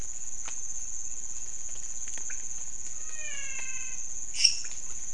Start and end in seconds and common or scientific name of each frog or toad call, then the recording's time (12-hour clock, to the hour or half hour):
0.2	5.1	pointedbelly frog
2.8	4.2	menwig frog
4.2	5.0	lesser tree frog
3am